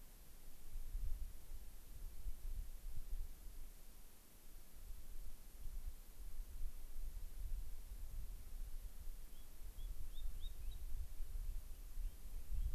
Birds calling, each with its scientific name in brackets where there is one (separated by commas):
Spotted Sandpiper (Actitis macularius)